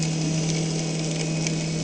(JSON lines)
{"label": "anthrophony, boat engine", "recorder": "HydroMoth"}